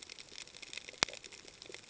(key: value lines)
label: ambient
recorder: HydroMoth